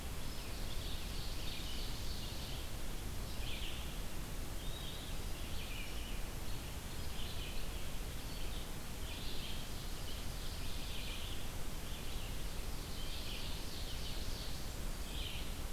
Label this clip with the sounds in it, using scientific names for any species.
Seiurus aurocapilla, Vireo olivaceus